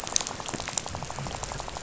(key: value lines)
label: biophony, rattle
recorder: SoundTrap 500